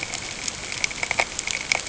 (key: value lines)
label: ambient
recorder: HydroMoth